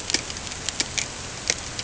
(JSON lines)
{"label": "ambient", "recorder": "HydroMoth"}